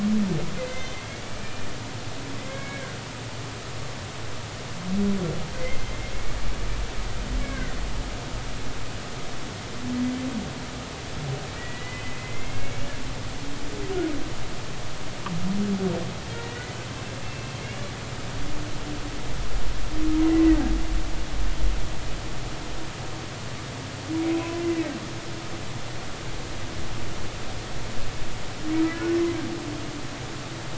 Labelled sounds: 0.6	1.7	humpback whale, 2.0 to 6.3 kHz
2.4	2.9	humpback whale, 1.5 to 2.3 kHz
5.6	6.1	humpback whale, 2.0 to 2.2 kHz
7.4	7.7	humpback whale, 1.4 to 2.3 kHz
11.6	12.6	humpback whale, 1.9 to 2.2 kHz
16.3	16.8	humpback whale, 1.8 to 2.0 kHz
17.2	17.6	humpback whale, 2.6 to 2.7 kHz
24.3	24.9	humpback whale, 1.8 to 2.7 kHz

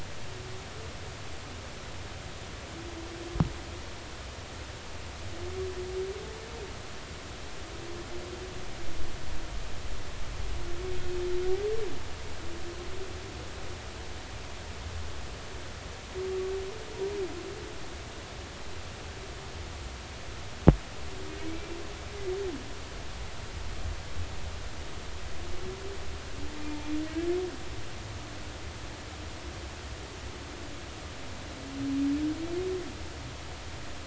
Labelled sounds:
21.5	21.8	humpback whale, 2.2 to 2.4 kHz

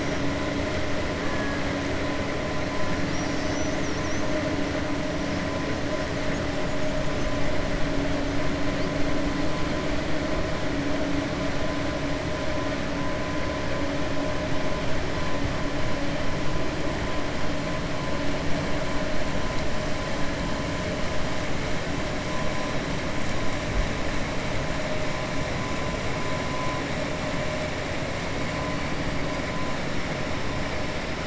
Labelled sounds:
1.2	1.6	killer whale, 1.1 to 2.6 kHz
3.0	4.3	killer whale, 4.7 to 6.9 kHz

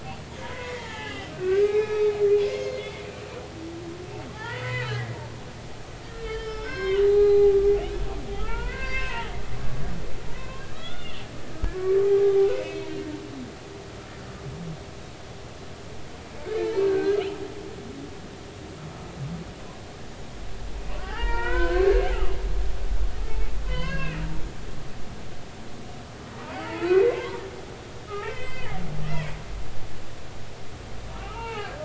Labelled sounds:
0.4	2.2	humpback whale, 0.80 to 3.9 kHz
2.4	3.0	humpback whale, 2.0 to 6.5 kHz
4.3	5.1	humpback whale, 0.80 to 4.6 kHz
6.0	7.6	humpback whale, 0.80 to 5.5 kHz
8.4	9.3	humpback whale, 0.83 to 5.3 kHz
9.6	11.2	humpback whale, 0.90 to 3.6 kHz
11.5	12.9	humpback whale, 0.80 to 2.7 kHz
16.4	17.2	humpback whale, 1.4 to 2.4 kHz
21.0	22.1	humpback whale, 0.80 to 3.1 kHz
23.6	24.2	humpback whale, 0.96 to 5.0 kHz
26.9	28.8	humpback whale, 0.86 to 4.2 kHz
31.2	31.7	humpback whale, 0.80 to 4.3 kHz

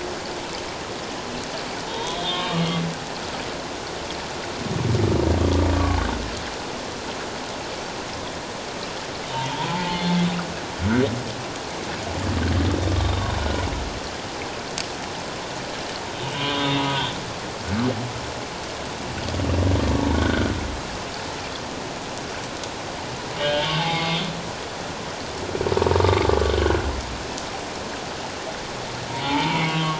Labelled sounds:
1.8	2.9	humpback whale, 0.84 to 3.8 kHz
5.7	6.0	humpback whale, 1.0 to 1.2 kHz
9.5	10.0	humpback whale, 0.81 to 1.1 kHz
13.0	13.3	humpback whale, 3.5 to 3.8 kHz
16.2	17.1	humpback whale, 2.8 to 3.8 kHz
20.1	20.5	humpback whale, 1.4 to 1.7 kHz
23.4	24.2	humpback whale, 0.78 to 3.3 kHz
26.0	26.3	humpback whale, 1.1 to 1.2 kHz
29.2	29.9	humpback whale, 0.81 to 2.4 kHz

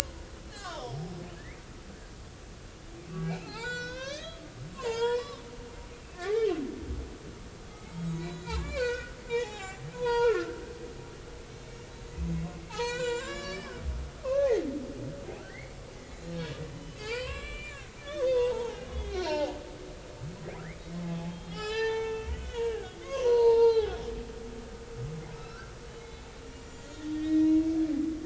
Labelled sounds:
0.5	1.6	humpback whale, 0.80 to 5.6 kHz
3.2	5.4	humpback whale, 0.80 to 7.5 kHz
6.1	6.4	humpback whale, 1.0 to 1.2 kHz
7.7	10.5	humpback whale, 0.80 to 7.5 kHz
12.7	14.5	humpback whale, 0.80 to 7.6 kHz
15.5	16.4	humpback whale, 1.7 to 4.2 kHz
16.7	19.6	humpback whale, 0.80 to 7.2 kHz
21.0	25.0	humpback whale, 0.80 to 6.6 kHz
25.3	27.6	humpback whale, 1.2 to 7.2 kHz

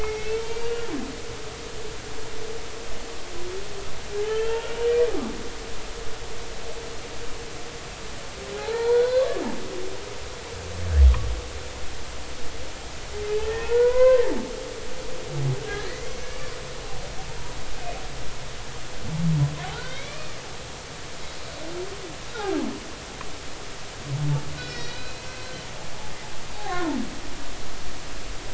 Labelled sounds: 0.0	0.9	humpback whale, 2.1 to 4.7 kHz
4.2	4.7	humpback whale, 1.7 to 3.3 kHz
8.5	9.3	humpback whale, 0.80 to 4.2 kHz
13.4	14.2	humpback whale, 0.80 to 2.1 kHz
15.7	16.5	humpback whale, 1.6 to 6.2 kHz
19.7	20.4	humpback whale, 1.3 to 4.0 kHz
24.6	25.5	humpback whale, 1.9 to 5.0 kHz
26.7	26.9	humpback whale, 1.7 to 2.0 kHz

